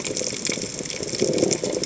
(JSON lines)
{"label": "biophony", "recorder": "HydroMoth"}